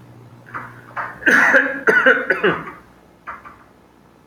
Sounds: Cough